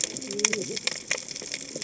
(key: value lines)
label: biophony, cascading saw
recorder: HydroMoth